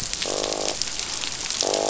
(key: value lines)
label: biophony, croak
recorder: SoundTrap 500